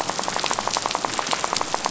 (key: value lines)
label: biophony, rattle
recorder: SoundTrap 500